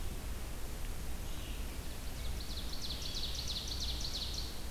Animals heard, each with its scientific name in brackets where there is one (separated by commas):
Red-eyed Vireo (Vireo olivaceus), Ovenbird (Seiurus aurocapilla)